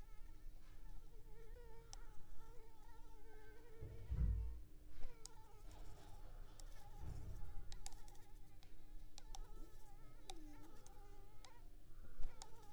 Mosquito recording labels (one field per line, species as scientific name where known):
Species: Anopheles arabiensis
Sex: female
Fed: unfed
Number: one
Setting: cup